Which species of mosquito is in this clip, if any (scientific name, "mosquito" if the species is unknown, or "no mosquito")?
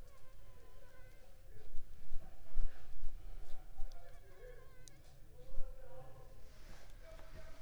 Anopheles funestus s.s.